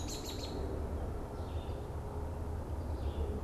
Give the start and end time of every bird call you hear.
0.0s-0.6s: American Robin (Turdus migratorius)
0.0s-3.4s: Red-eyed Vireo (Vireo olivaceus)

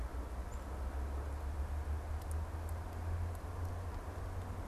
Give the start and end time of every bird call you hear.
0.3s-0.7s: unidentified bird

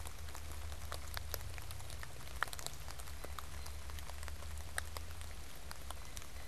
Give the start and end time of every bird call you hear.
0.0s-6.5s: Blue Jay (Cyanocitta cristata)

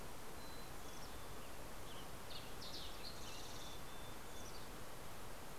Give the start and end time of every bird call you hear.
0.0s-2.2s: Mountain Chickadee (Poecile gambeli)
1.5s-3.9s: Western Tanager (Piranga ludoviciana)

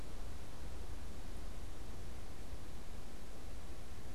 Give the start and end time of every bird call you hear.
0.0s-4.1s: Great Crested Flycatcher (Myiarchus crinitus)

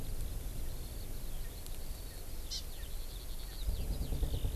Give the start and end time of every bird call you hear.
0.0s-4.6s: Eurasian Skylark (Alauda arvensis)
2.5s-2.6s: Hawaii Amakihi (Chlorodrepanis virens)

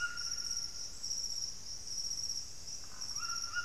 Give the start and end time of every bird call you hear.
0.0s-0.7s: unidentified bird
0.0s-3.6s: White-throated Toucan (Ramphastos tucanus)
2.6s-3.5s: unidentified bird

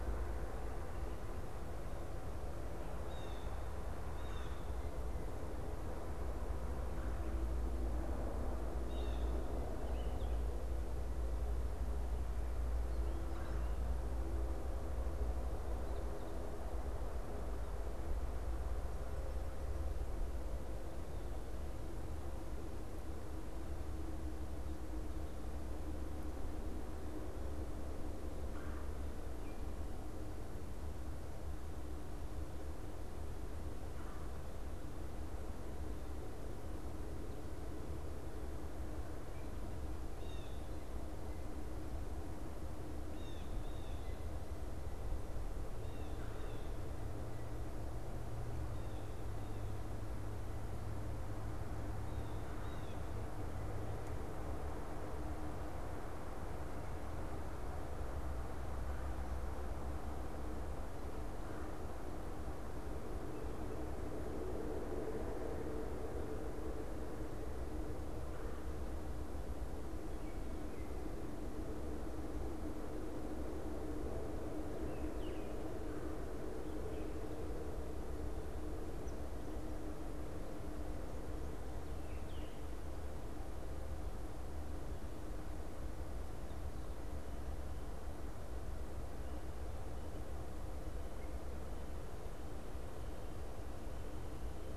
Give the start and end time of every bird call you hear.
2.8s-4.7s: Blue Jay (Cyanocitta cristata)
8.8s-9.4s: Blue Jay (Cyanocitta cristata)
9.9s-10.5s: American Robin (Turdus migratorius)
13.2s-13.7s: Red-bellied Woodpecker (Melanerpes carolinus)
28.3s-28.9s: Red-bellied Woodpecker (Melanerpes carolinus)
39.3s-46.9s: Blue Jay (Cyanocitta cristata)
46.0s-46.7s: Red-bellied Woodpecker (Melanerpes carolinus)
52.3s-53.1s: Blue Jay (Cyanocitta cristata)
61.3s-61.9s: Red-bellied Woodpecker (Melanerpes carolinus)
68.1s-68.8s: Red-bellied Woodpecker (Melanerpes carolinus)
74.9s-75.6s: American Robin (Turdus migratorius)
75.8s-76.3s: Red-bellied Woodpecker (Melanerpes carolinus)

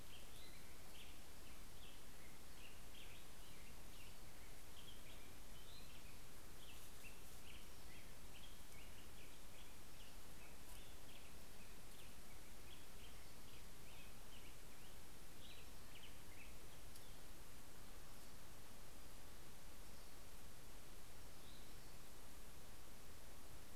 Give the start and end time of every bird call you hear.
0.0s-16.8s: Black-headed Grosbeak (Pheucticus melanocephalus)

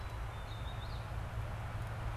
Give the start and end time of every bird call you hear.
0.0s-0.5s: Black-capped Chickadee (Poecile atricapillus)
0.4s-1.2s: Purple Finch (Haemorhous purpureus)

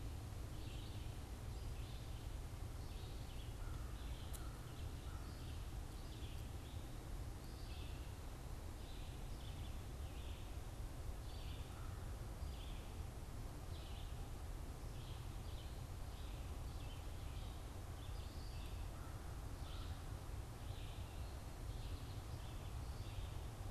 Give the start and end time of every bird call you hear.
0.0s-8.3s: Red-eyed Vireo (Vireo olivaceus)
8.6s-23.7s: Red-eyed Vireo (Vireo olivaceus)
11.6s-23.7s: American Crow (Corvus brachyrhynchos)

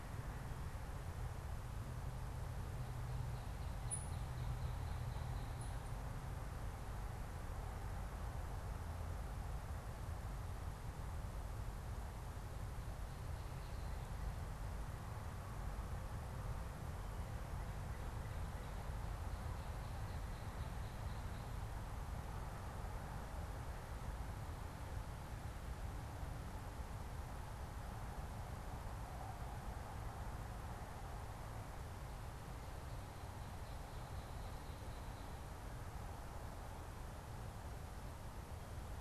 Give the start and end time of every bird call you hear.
3.4s-5.9s: Ovenbird (Seiurus aurocapilla)
3.8s-6.1s: unidentified bird
17.0s-19.3s: Northern Cardinal (Cardinalis cardinalis)

